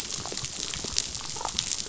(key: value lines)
label: biophony, damselfish
recorder: SoundTrap 500